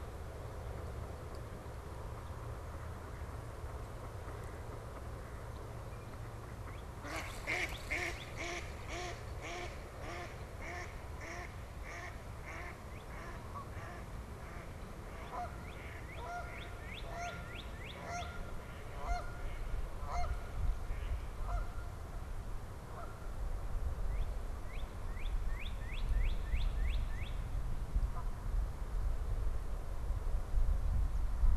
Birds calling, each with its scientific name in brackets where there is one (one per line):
Northern Cardinal (Cardinalis cardinalis)
Mallard (Anas platyrhynchos)
Canada Goose (Branta canadensis)